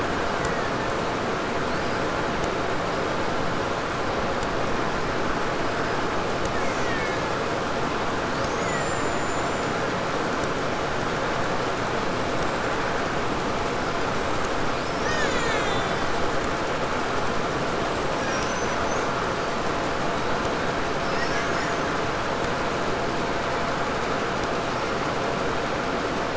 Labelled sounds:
0.1	1.2	killer whale, Bigg's (transient), 0.98 to 2.3 kHz
6.2	7.6	killer whale, Bigg's (transient), 1.3 to 8.0 kHz
8.1	10.0	killer whale, 1.3 to 7.6 kHz
14.7	16.5	killer whale, Bigg's (transient), 0.52 to 8.0 kHz
18.0	19.2	killer whale, 0.68 to 6.8 kHz
20.9	22.1	killer whale, 1.1 to 7.3 kHz

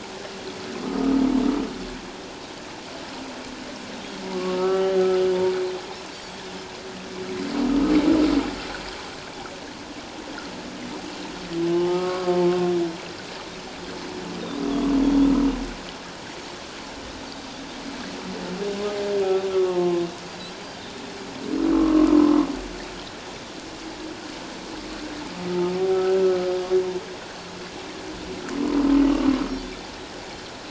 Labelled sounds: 4.5	5.0	humpback whale, 1.2 to 1.9 kHz
11.7	12.3	humpback whale, 0.78 to 3.0 kHz
15.0	15.3	Pacific white-sided dolphin, 3.2 to 3.6 kHz
19.5	20.0	humpback whale, 0.81 to 1.2 kHz
21.7	22.1	humpback whale, 1.0 to 1.2 kHz
25.9	26.2	humpback whale, 1.2 to 1.6 kHz

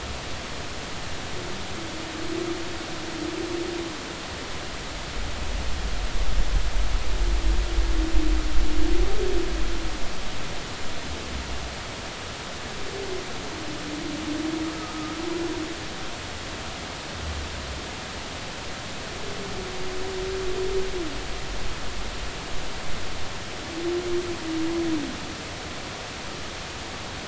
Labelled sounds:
14.7	15.2	humpback whale, 1.2 to 1.3 kHz

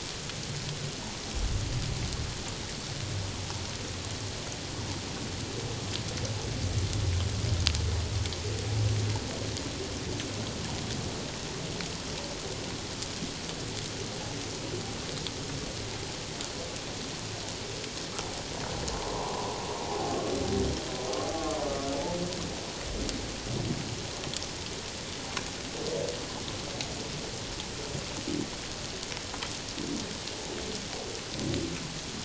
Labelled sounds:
19.1	20.2	humpback whale, 0.78 to 1.2 kHz
21.3	21.6	humpback whale, 1.0 to 1.2 kHz

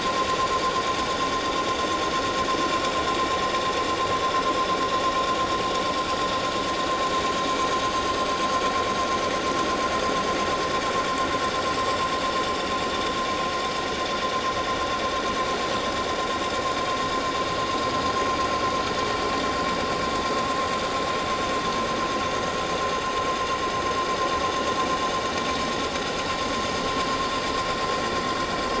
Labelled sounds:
7.8	8.4	vessel noise, 6.2 to 7.7 kHz
22.4	22.7	vessel noise, 6.5 to 6.6 kHz

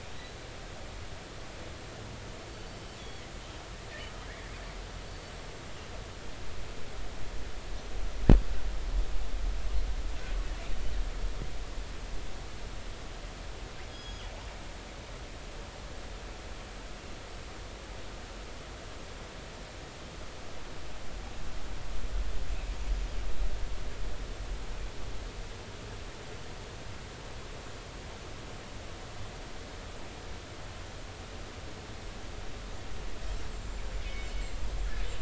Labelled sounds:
2.7	3.2	killer whale, northern resident, G clan, GG subclan, call N23ii, 3.0 to 3.5 kHz
5.1	5.3	killer whale, northern resident, G clan, 4.4 to 4.5 kHz
13.9	14.3	killer whale, northern resident, G clan, GG subclan, call N28, 2.9 to 5.1 kHz
33.5	33.9	killer whale, northern resident, G clan, GI subclan, call N25, 7.1 to 7.7 kHz
34.0	34.4	killer whale, northern resident, G clan, call N24ii, 2.1 to 3.1 kHz
34.6	34.9	killer whale, northern resident, G clan, GI subclan, call N25, 7.2 to 7.5 kHz

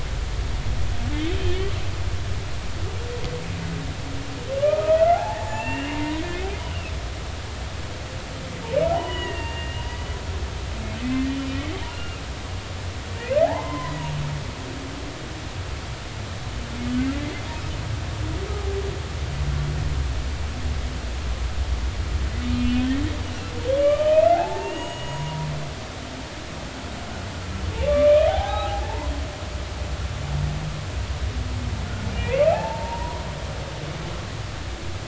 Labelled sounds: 1.5	1.7	humpback whale, 1.7 to 2.0 kHz
4.6	6.9	humpback whale, 0.80 to 3.1 kHz
8.9	10.0	humpback whale, 0.80 to 3.0 kHz
11.0	11.3	humpback whale, 1.9 to 2.7 kHz
11.9	12.2	humpback whale, 1.2 to 2.9 kHz
13.4	14.0	humpback whale, 0.80 to 2.1 kHz
23.8	25.5	humpback whale, 0.80 to 6.8 kHz
27.9	29.1	humpback whale, 0.80 to 2.5 kHz
32.1	33.2	humpback whale, 0.80 to 2.5 kHz

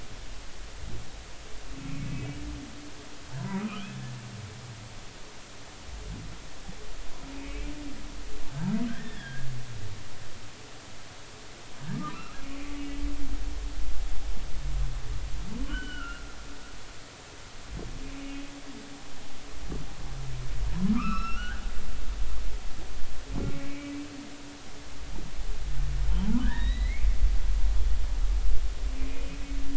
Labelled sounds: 2.0	2.3	humpback whale, 2.5 to 2.6 kHz
3.5	5.0	humpback whale, 1.2 to 3.5 kHz
7.3	7.7	humpback whale, 2.2 to 2.7 kHz
8.9	9.5	humpback whale, 1.5 to 3.7 kHz
11.9	12.4	humpback whale, 1.1 to 1.5 kHz
15.6	16.3	humpback whale, 1.2 to 3.2 kHz
18.2	18.5	humpback whale, 2.5 to 2.6 kHz
20.9	21.6	humpback whale, 0.96 to 5.4 kHz
23.7	23.9	humpback whale, 2.2 to 2.4 kHz
26.4	27.1	humpback whale, 1.4 to 4.2 kHz
29.1	29.4	humpback whale, 2.4 to 2.6 kHz

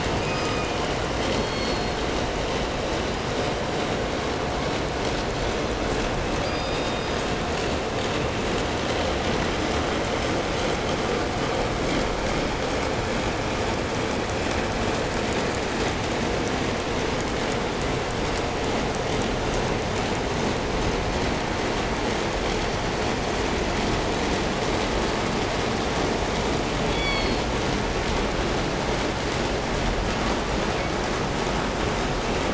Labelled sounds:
0.0	0.9	killer whale, southern resident, call S17, 0.98 to 6.9 kHz
1.1	2.1	killer whale, southern resident, call S16, 1.6 to 8.0 kHz
3.0	3.7	killer whale, southern resident, call S17, 4.7 to 5.1 kHz
6.3	7.5	killer whale, southern resident, call S17, 1.9 to 8.0 kHz
26.8	27.5	killer whale, southern resident, call S16, 1.8 to 8.0 kHz

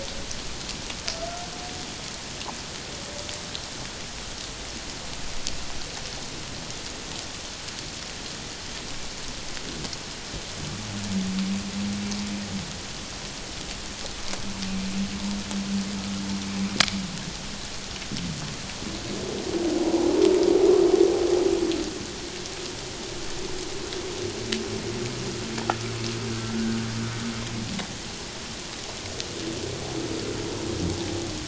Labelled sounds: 19.8	20.1	humpback whale, 0.91 to 1.0 kHz

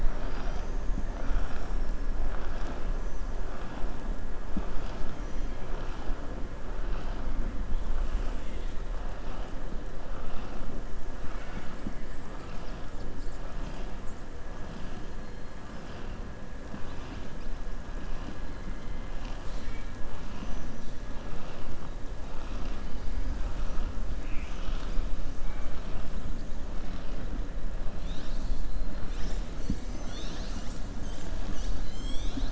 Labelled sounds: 5.1	5.5	killer whale, southern resident, 5.7 to 6.7 kHz
11.2	11.8	killer whale, southern resident, 1.2 to 4.6 kHz
19.1	19.9	killer whale, southern resident, 1.8 to 7.9 kHz
20.3	20.9	killer whale, southern resident, 5.2 to 7.0 kHz
24.1	25.0	killer whale, southern resident, 1.2 to 7.1 kHz
25.4	25.8	killer whale, southern resident, 0.83 to 3.1 kHz

